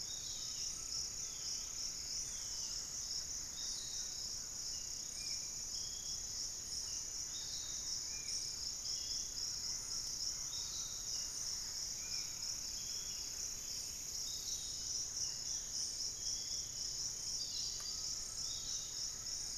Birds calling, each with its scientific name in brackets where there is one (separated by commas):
Long-winged Antwren (Myrmotherula longipennis), Thrush-like Wren (Campylorhynchus turdinus), unidentified bird, Barred Forest-Falcon (Micrastur ruficollis), Spot-winged Antshrike (Pygiptila stellaris), Pygmy Antwren (Myrmotherula brachyura), Piratic Flycatcher (Legatus leucophaius), Undulated Tinamou (Crypturellus undulatus)